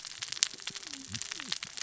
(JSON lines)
{"label": "biophony, cascading saw", "recorder": "SoundTrap 600 or HydroMoth"}